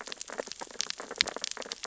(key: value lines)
label: biophony, sea urchins (Echinidae)
recorder: SoundTrap 600 or HydroMoth